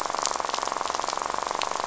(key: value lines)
label: biophony, rattle
recorder: SoundTrap 500